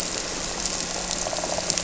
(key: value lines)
label: anthrophony, boat engine
recorder: SoundTrap 300

label: biophony
recorder: SoundTrap 300